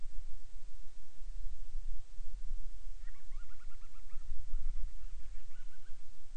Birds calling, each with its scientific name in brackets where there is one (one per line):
Band-rumped Storm-Petrel (Hydrobates castro)